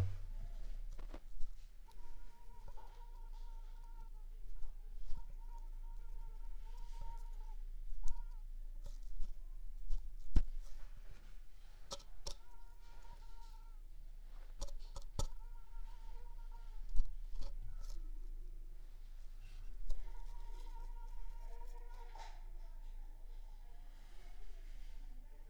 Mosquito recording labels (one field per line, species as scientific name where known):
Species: Anopheles squamosus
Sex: female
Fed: unfed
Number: one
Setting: cup